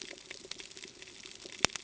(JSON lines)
{"label": "ambient", "recorder": "HydroMoth"}